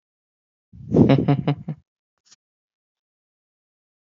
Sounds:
Laughter